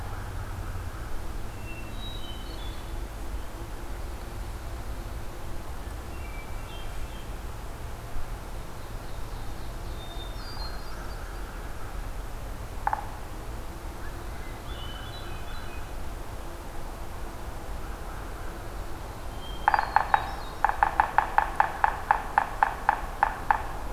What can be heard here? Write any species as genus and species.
Catharus guttatus, Seiurus aurocapilla, Corvus brachyrhynchos, Sphyrapicus varius